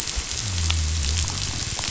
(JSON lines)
{"label": "biophony", "recorder": "SoundTrap 500"}